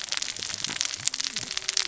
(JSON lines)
{"label": "biophony, cascading saw", "recorder": "SoundTrap 600 or HydroMoth"}